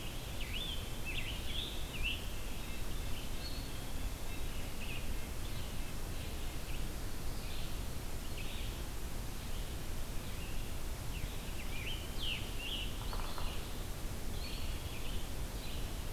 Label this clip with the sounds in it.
Scarlet Tanager, Red-breasted Nuthatch, Eastern Wood-Pewee, Red-eyed Vireo, Yellow-bellied Sapsucker